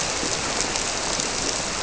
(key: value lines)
label: biophony
recorder: SoundTrap 300